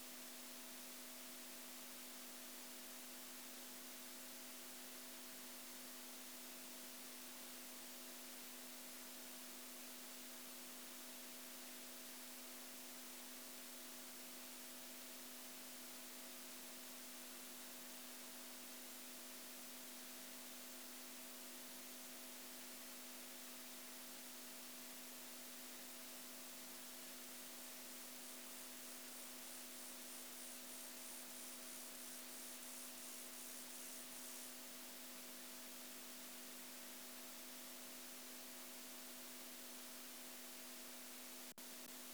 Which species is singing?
Chorthippus mollis